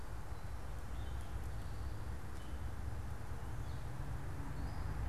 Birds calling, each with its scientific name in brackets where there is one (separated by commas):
Gray Catbird (Dumetella carolinensis)